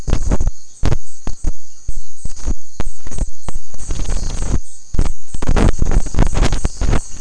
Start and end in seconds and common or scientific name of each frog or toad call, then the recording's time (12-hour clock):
none
8:15pm